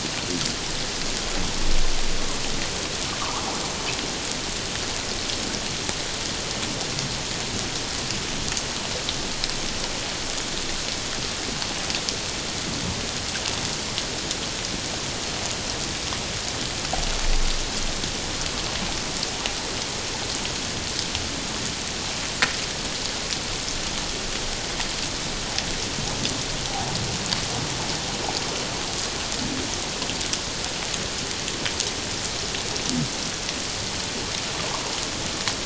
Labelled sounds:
3.2	3.5	water noise, 0.78 to 1.3 kHz

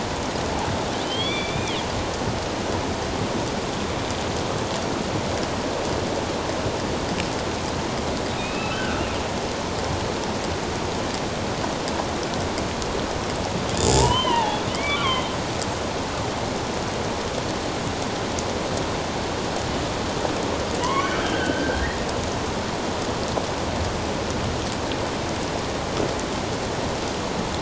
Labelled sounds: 1.0	1.8	killer whale, northern resident, A clan, AB subclan, 2.0 to 3.8 kHz
8.4	9.0	killer whale, northern resident, A clan, AB subclan, 1.3 to 2.7 kHz
13.9	15.3	killer whale, northern resident, A clan, AB subclan, 0.78 to 3.8 kHz
20.8	21.9	killer whale, northern resident, A clan, AB subclan, 0.94 to 3.3 kHz

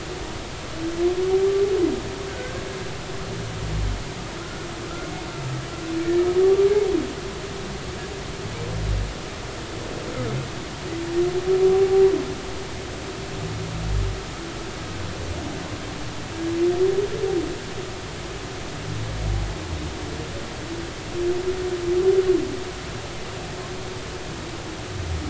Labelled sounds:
2.3	2.5	humpback whale, 1.4 to 1.6 kHz
4.4	4.7	humpback whale, 1.2 to 1.5 kHz
11.7	12.0	humpback whale, 0.80 to 0.83 kHz

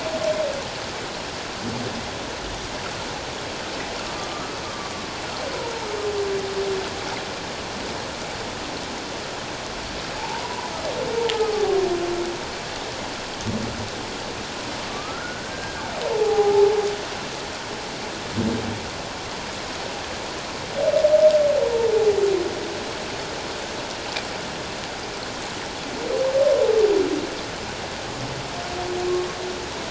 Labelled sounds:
4.3	4.9	humpback whale, 1.0 to 1.3 kHz
10.2	10.7	humpback whale, 0.78 to 1.0 kHz
11.5	11.8	humpback whale, 0.78 to 0.84 kHz
14.9	15.8	humpback whale, 1.1 to 1.7 kHz
16.1	16.7	humpback whale, 0.78 to 0.94 kHz
21.9	22.2	humpback whale, 0.78 to 0.91 kHz

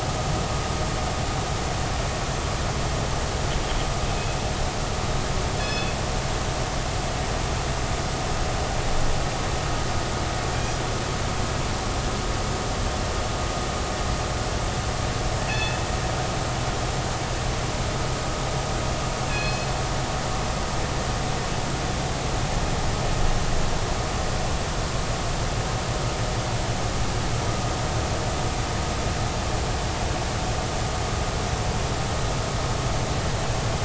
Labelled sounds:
4.1	4.4	killer whale, northern resident, G clan, call N24ii, 2.5 to 2.6 kHz
5.6	5.9	killer whale, northern resident, G clan, call N24ii, 2.5 to 5.2 kHz
15.5	15.8	killer whale, northern resident, G clan, call N24ii, 2.4 to 3.6 kHz
19.3	19.7	killer whale, northern resident, G clan, call N24ii, 2.4 to 4.3 kHz

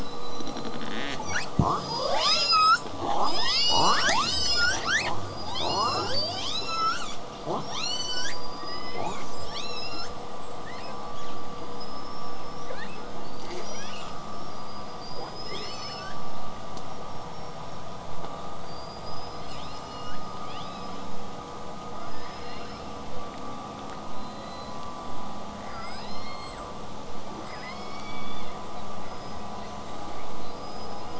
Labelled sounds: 0.0	0.9	killer whale, southern resident, 3.8 to 8.0 kHz
0.9	1.5	killer whale, southern resident, L pod, call S22, 0.19 to 8.0 kHz
1.6	7.2	killer whale, southern resident, L pod, call S19, 0.22 to 8.0 kHz
7.4	10.2	killer whale, southern resident, L pod, call S19, 0.17 to 8.0 kHz
10.6	11.3	killer whale, southern resident, 1.4 to 6.9 kHz
11.3	13.2	killer whale, southern resident, L pod, call S19, 1.2 to 8.0 kHz
13.2	14.6	killer whale, southern resident, 4.3 to 8.0 kHz
13.5	14.1	killer whale, southern resident, L pod, call S22, 1.2 to 8.0 kHz
14.5	16.4	killer whale, southern resident, L pod, call S19, 0.29 to 8.0 kHz
16.7	18.1	killer whale, southern resident, 5.3 to 8.0 kHz
18.6	21.2	killer whale, southern resident, L pod, call S19, 1.4 to 8.0 kHz
21.9	23.1	killer whale, southern resident, L pod, call S19, 1.3 to 8.0 kHz
24.1	25.0	killer whale, southern resident, 1.7 to 8.0 kHz
25.6	26.9	killer whale, southern resident, call S02, 1.1 to 8.0 kHz
27.5	28.6	killer whale, southern resident, L pod, call S02iii, 1.3 to 8.0 kHz
29.1	29.4	killer whale, southern resident, 4.8 to 5.2 kHz

